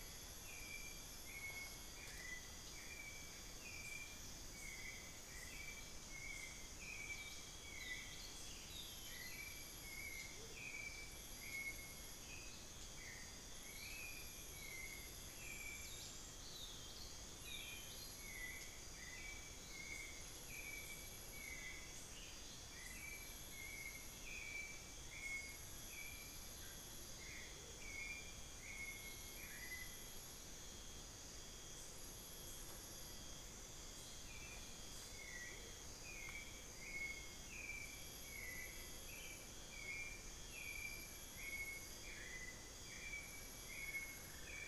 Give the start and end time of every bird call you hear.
0.0s-44.7s: Hauxwell's Thrush (Turdus hauxwelli)
10.3s-10.8s: Amazonian Motmot (Momotus momota)
13.6s-15.0s: unidentified bird
16.1s-19.5s: Amazonian Pygmy-Owl (Glaucidium hardyi)
21.9s-22.6s: unidentified bird
27.4s-28.1s: Amazonian Motmot (Momotus momota)
35.4s-35.8s: Amazonian Motmot (Momotus momota)
43.8s-44.7s: Cinnamon-throated Woodcreeper (Dendrexetastes rufigula)

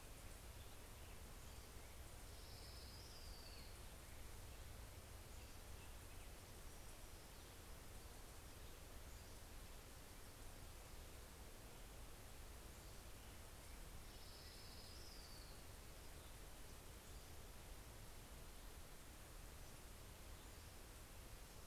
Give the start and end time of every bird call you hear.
1.8s-4.0s: Orange-crowned Warbler (Leiothlypis celata)
8.7s-9.6s: Pacific-slope Flycatcher (Empidonax difficilis)
12.4s-13.2s: Pacific-slope Flycatcher (Empidonax difficilis)
13.6s-16.0s: Orange-crowned Warbler (Leiothlypis celata)

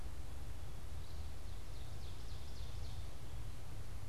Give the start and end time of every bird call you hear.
0.8s-3.2s: Ovenbird (Seiurus aurocapilla)

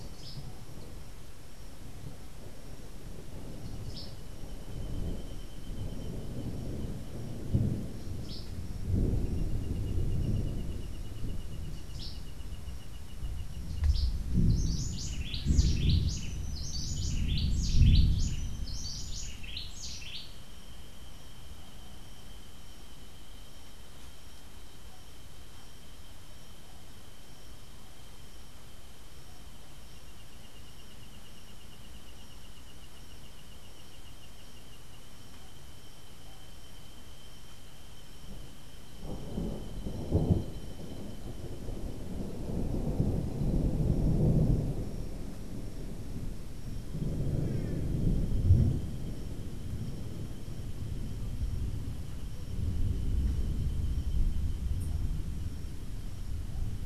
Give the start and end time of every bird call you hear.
0.0s-0.5s: Cabanis's Wren (Cantorchilus modestus)
3.8s-4.3s: Cabanis's Wren (Cantorchilus modestus)
8.1s-8.6s: Cabanis's Wren (Cantorchilus modestus)
11.8s-12.3s: Cabanis's Wren (Cantorchilus modestus)
13.8s-20.5s: Cabanis's Wren (Cantorchilus modestus)

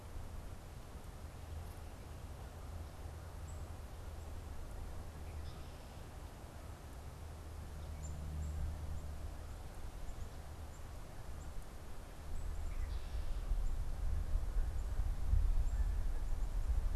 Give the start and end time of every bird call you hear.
5.1s-5.8s: Red-winged Blackbird (Agelaius phoeniceus)
7.7s-17.0s: Black-capped Chickadee (Poecile atricapillus)
12.3s-13.3s: Red-winged Blackbird (Agelaius phoeniceus)
15.4s-17.0s: Canada Goose (Branta canadensis)

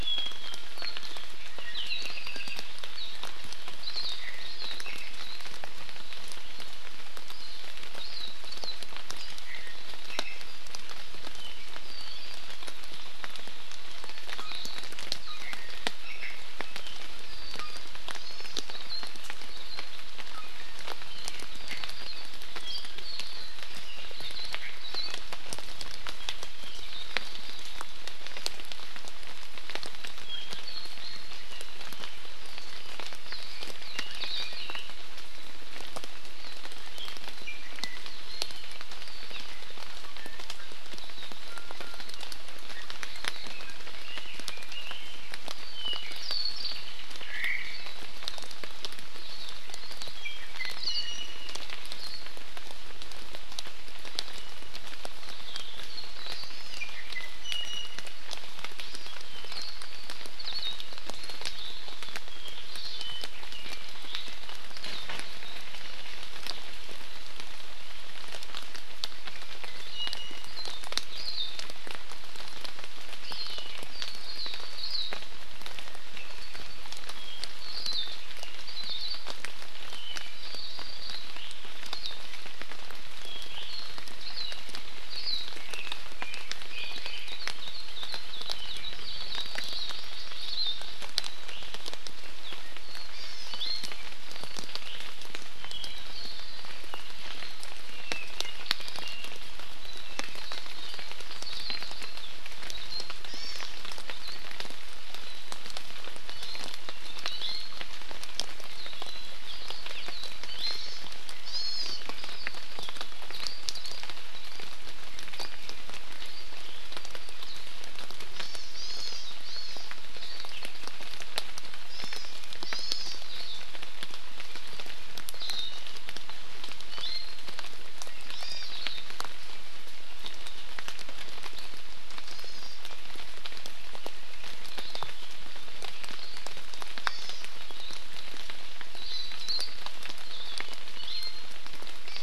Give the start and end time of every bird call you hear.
0.5s-1.0s: Iiwi (Drepanis coccinea)
1.8s-2.6s: Apapane (Himatione sanguinea)
3.8s-4.7s: Hawaii Akepa (Loxops coccineus)
8.0s-8.7s: Hawaii Akepa (Loxops coccineus)
9.4s-10.4s: Iiwi (Drepanis coccinea)
11.3s-12.5s: Apapane (Himatione sanguinea)
14.0s-14.5s: Iiwi (Drepanis coccinea)
14.5s-14.9s: Hawaii Akepa (Loxops coccineus)
15.2s-16.4s: Iiwi (Drepanis coccinea)
17.6s-17.7s: Iiwi (Drepanis coccinea)
18.2s-18.6s: Hawaii Amakihi (Chlorodrepanis virens)
18.6s-19.2s: Hawaii Akepa (Loxops coccineus)
19.5s-19.9s: Hawaii Akepa (Loxops coccineus)
20.3s-20.8s: Iiwi (Drepanis coccinea)
21.1s-23.6s: Apapane (Himatione sanguinea)
24.1s-24.5s: Hawaii Akepa (Loxops coccineus)
24.8s-25.1s: Hawaii Akepa (Loxops coccineus)
33.5s-34.9s: Red-billed Leiothrix (Leiothrix lutea)
34.2s-34.8s: Hawaii Akepa (Loxops coccineus)
37.4s-38.0s: Iiwi (Drepanis coccinea)
40.0s-40.7s: Iiwi (Drepanis coccinea)
41.4s-42.0s: Iiwi (Drepanis coccinea)
43.5s-45.2s: Red-billed Leiothrix (Leiothrix lutea)
45.5s-46.9s: Apapane (Himatione sanguinea)
47.3s-47.8s: Omao (Myadestes obscurus)
50.1s-51.6s: Iiwi (Drepanis coccinea)
50.7s-51.0s: Hawaii Akepa (Loxops coccineus)
52.0s-52.2s: Hawaii Akepa (Loxops coccineus)
56.4s-56.9s: Hawaii Amakihi (Chlorodrepanis virens)
56.7s-58.2s: Iiwi (Drepanis coccinea)
58.8s-59.1s: Hawaii Amakihi (Chlorodrepanis virens)
59.4s-59.7s: Hawaii Akepa (Loxops coccineus)
60.4s-60.8s: Hawaii Akepa (Loxops coccineus)

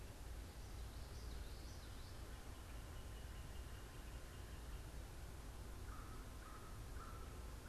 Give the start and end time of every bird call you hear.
0.9s-2.2s: Common Yellowthroat (Geothlypis trichas)
1.9s-4.9s: Northern Cardinal (Cardinalis cardinalis)
5.6s-7.7s: American Crow (Corvus brachyrhynchos)

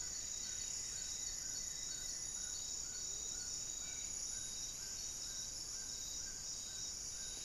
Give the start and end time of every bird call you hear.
0.0s-2.6s: Goeldi's Antbird (Akletos goeldii)
0.0s-7.4s: Amazonian Trogon (Trogon ramonianus)
2.9s-3.4s: Amazonian Motmot (Momotus momota)
3.7s-7.4s: Spot-winged Antshrike (Pygiptila stellaris)

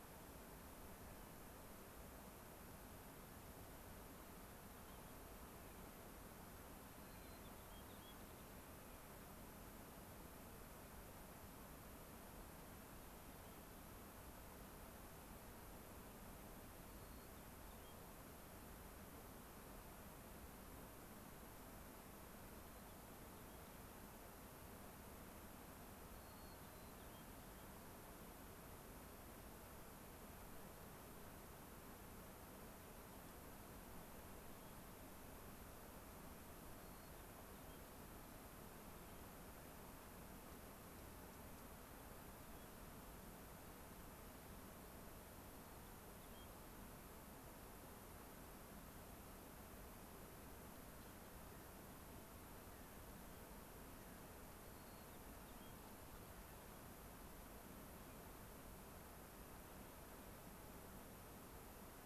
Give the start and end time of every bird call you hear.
4.8s-5.0s: White-crowned Sparrow (Zonotrichia leucophrys)
6.9s-8.2s: White-crowned Sparrow (Zonotrichia leucophrys)
13.4s-13.6s: White-crowned Sparrow (Zonotrichia leucophrys)
16.8s-18.0s: White-crowned Sparrow (Zonotrichia leucophrys)
22.6s-23.0s: White-crowned Sparrow (Zonotrichia leucophrys)
26.1s-27.2s: White-crowned Sparrow (Zonotrichia leucophrys)
33.2s-33.4s: Dark-eyed Junco (Junco hyemalis)
34.4s-34.7s: unidentified bird
36.7s-37.8s: White-crowned Sparrow (Zonotrichia leucophrys)
38.9s-39.2s: White-crowned Sparrow (Zonotrichia leucophrys)
41.5s-41.6s: Dark-eyed Junco (Junco hyemalis)
42.4s-42.7s: White-crowned Sparrow (Zonotrichia leucophrys)
45.4s-46.5s: White-crowned Sparrow (Zonotrichia leucophrys)
53.1s-53.5s: White-crowned Sparrow (Zonotrichia leucophrys)
54.6s-55.8s: White-crowned Sparrow (Zonotrichia leucophrys)

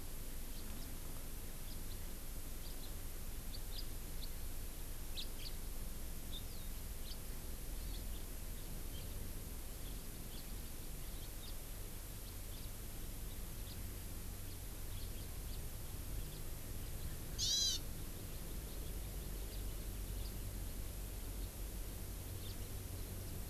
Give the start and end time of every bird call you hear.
0.5s-0.7s: House Finch (Haemorhous mexicanus)
1.7s-1.8s: House Finch (Haemorhous mexicanus)
2.6s-2.8s: House Finch (Haemorhous mexicanus)
3.5s-3.9s: House Finch (Haemorhous mexicanus)
5.2s-5.5s: House Finch (Haemorhous mexicanus)
7.1s-7.2s: House Finch (Haemorhous mexicanus)
10.4s-10.5s: House Finch (Haemorhous mexicanus)
11.5s-11.6s: House Finch (Haemorhous mexicanus)
13.7s-13.8s: House Finch (Haemorhous mexicanus)
15.2s-15.6s: House Finch (Haemorhous mexicanus)
17.4s-17.8s: Hawaiian Hawk (Buteo solitarius)
22.5s-22.6s: House Finch (Haemorhous mexicanus)

